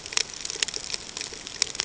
{"label": "ambient", "recorder": "HydroMoth"}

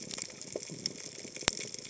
{"label": "biophony", "recorder": "HydroMoth"}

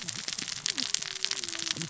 {"label": "biophony, cascading saw", "recorder": "SoundTrap 600 or HydroMoth"}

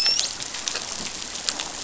{"label": "biophony, dolphin", "recorder": "SoundTrap 500"}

